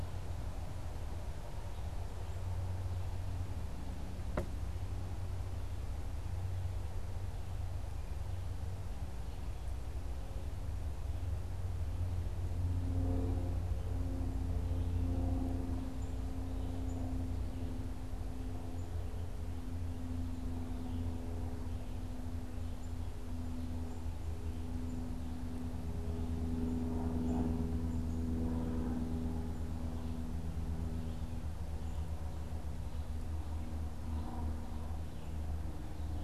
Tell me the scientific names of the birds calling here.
unidentified bird